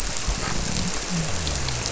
{"label": "biophony", "recorder": "SoundTrap 300"}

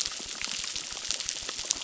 {"label": "biophony, crackle", "recorder": "SoundTrap 600"}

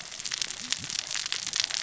{"label": "biophony, cascading saw", "recorder": "SoundTrap 600 or HydroMoth"}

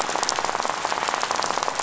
{"label": "biophony, rattle", "recorder": "SoundTrap 500"}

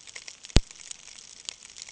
{"label": "ambient", "recorder": "HydroMoth"}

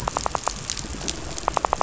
{"label": "biophony, rattle", "recorder": "SoundTrap 500"}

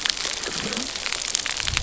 {"label": "geophony, waves", "recorder": "SoundTrap 300"}
{"label": "biophony, low growl", "recorder": "SoundTrap 300"}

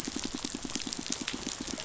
{"label": "biophony, pulse", "recorder": "SoundTrap 500"}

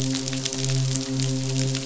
{"label": "biophony, midshipman", "recorder": "SoundTrap 500"}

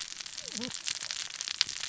{"label": "biophony, cascading saw", "recorder": "SoundTrap 600 or HydroMoth"}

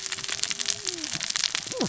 {"label": "biophony, cascading saw", "recorder": "SoundTrap 600 or HydroMoth"}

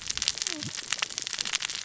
{"label": "biophony, cascading saw", "recorder": "SoundTrap 600 or HydroMoth"}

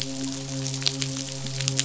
{"label": "biophony, midshipman", "recorder": "SoundTrap 500"}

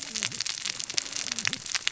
{"label": "biophony, cascading saw", "recorder": "SoundTrap 600 or HydroMoth"}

